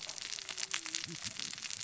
{"label": "biophony, cascading saw", "recorder": "SoundTrap 600 or HydroMoth"}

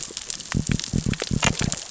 {"label": "biophony", "recorder": "SoundTrap 600 or HydroMoth"}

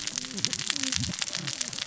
{"label": "biophony, cascading saw", "recorder": "SoundTrap 600 or HydroMoth"}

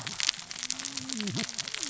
{"label": "biophony, cascading saw", "recorder": "SoundTrap 600 or HydroMoth"}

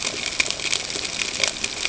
{"label": "ambient", "recorder": "HydroMoth"}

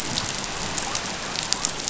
{"label": "biophony", "recorder": "SoundTrap 500"}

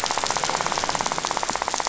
{"label": "biophony, rattle", "recorder": "SoundTrap 500"}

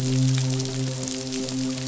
{"label": "biophony, midshipman", "recorder": "SoundTrap 500"}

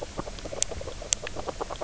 {"label": "biophony, knock croak", "recorder": "SoundTrap 300"}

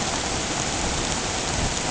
{"label": "ambient", "recorder": "HydroMoth"}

